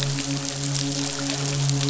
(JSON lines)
{"label": "biophony, midshipman", "recorder": "SoundTrap 500"}